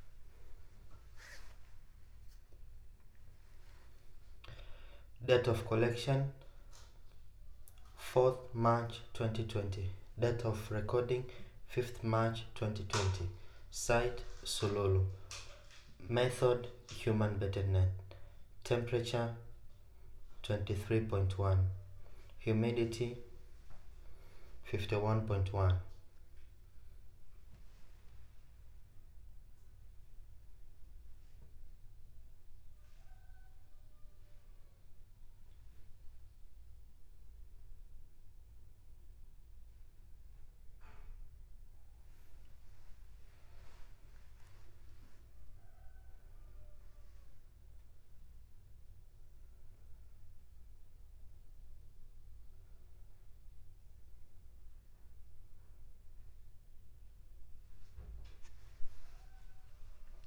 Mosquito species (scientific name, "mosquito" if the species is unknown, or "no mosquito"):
no mosquito